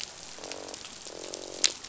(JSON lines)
{"label": "biophony, croak", "recorder": "SoundTrap 500"}